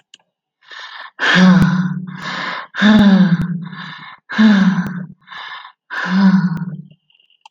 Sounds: Sigh